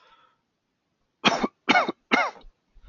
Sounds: Cough